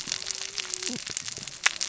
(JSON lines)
{"label": "biophony, cascading saw", "recorder": "SoundTrap 600 or HydroMoth"}